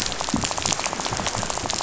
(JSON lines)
{"label": "biophony, rattle", "recorder": "SoundTrap 500"}